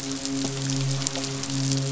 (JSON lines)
{"label": "biophony, midshipman", "recorder": "SoundTrap 500"}